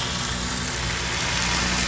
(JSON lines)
{"label": "anthrophony, boat engine", "recorder": "SoundTrap 500"}